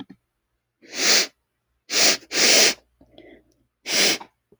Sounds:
Sniff